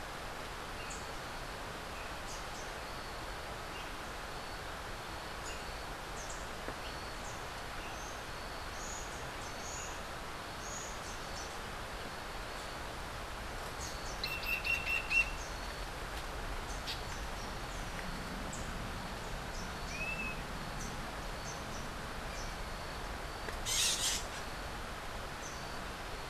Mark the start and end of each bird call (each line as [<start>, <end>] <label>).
[14.15, 15.55] Red-crowned Ant-Tanager (Habia rubica)
[23.55, 24.25] Red-crowned Ant-Tanager (Habia rubica)